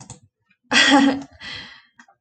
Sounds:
Laughter